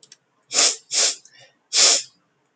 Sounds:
Sniff